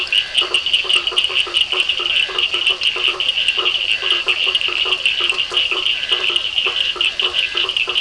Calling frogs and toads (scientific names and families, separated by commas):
Boana faber (Hylidae), Physalaemus cuvieri (Leptodactylidae), Scinax perereca (Hylidae), Sphaenorhynchus surdus (Hylidae)